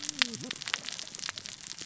{"label": "biophony, cascading saw", "recorder": "SoundTrap 600 or HydroMoth"}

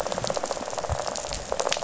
{"label": "biophony, rattle", "recorder": "SoundTrap 500"}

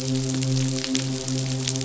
{"label": "biophony, midshipman", "recorder": "SoundTrap 500"}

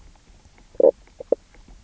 {"label": "biophony, knock croak", "recorder": "SoundTrap 300"}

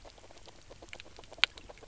{"label": "biophony, knock croak", "recorder": "SoundTrap 300"}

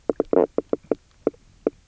{"label": "biophony, knock croak", "recorder": "SoundTrap 300"}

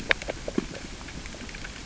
{"label": "biophony, grazing", "recorder": "SoundTrap 600 or HydroMoth"}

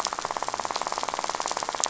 {"label": "biophony, rattle", "recorder": "SoundTrap 500"}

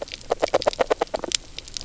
{"label": "biophony, knock croak", "recorder": "SoundTrap 300"}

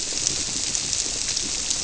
{"label": "biophony", "recorder": "SoundTrap 300"}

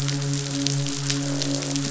{"label": "biophony, croak", "recorder": "SoundTrap 500"}
{"label": "biophony, midshipman", "recorder": "SoundTrap 500"}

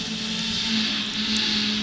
{"label": "anthrophony, boat engine", "recorder": "SoundTrap 500"}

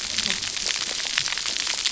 {"label": "biophony, cascading saw", "recorder": "SoundTrap 300"}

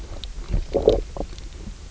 {"label": "biophony, low growl", "recorder": "SoundTrap 300"}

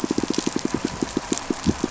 {"label": "biophony, pulse", "recorder": "SoundTrap 500"}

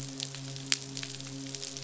{"label": "biophony, midshipman", "recorder": "SoundTrap 500"}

